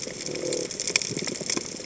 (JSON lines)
{"label": "biophony", "recorder": "HydroMoth"}